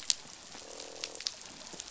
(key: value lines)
label: biophony, croak
recorder: SoundTrap 500